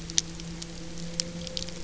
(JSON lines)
{"label": "anthrophony, boat engine", "recorder": "SoundTrap 300"}